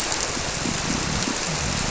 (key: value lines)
label: biophony
recorder: SoundTrap 300